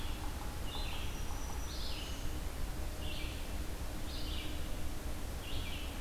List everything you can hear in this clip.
Yellow-bellied Sapsucker, Red-eyed Vireo, Black-throated Green Warbler